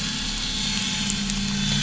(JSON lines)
{"label": "anthrophony, boat engine", "recorder": "SoundTrap 500"}